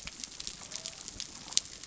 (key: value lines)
label: biophony
recorder: SoundTrap 300